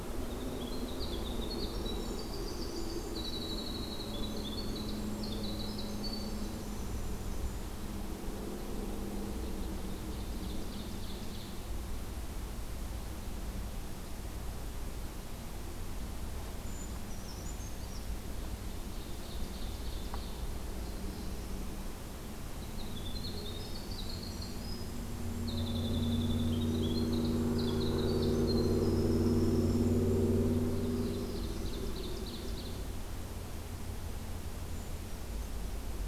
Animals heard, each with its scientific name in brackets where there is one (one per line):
Ovenbird (Seiurus aurocapilla)
Brown Creeper (Certhia americana)
Winter Wren (Troglodytes hiemalis)